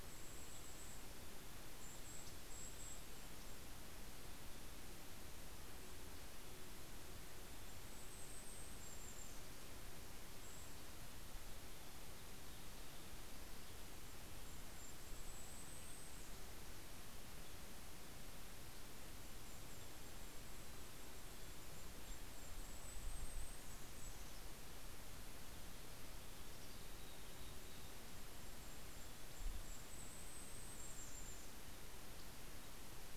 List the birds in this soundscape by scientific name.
Regulus satrapa, Sitta canadensis, Setophaga coronata, Piranga ludoviciana, Poecile gambeli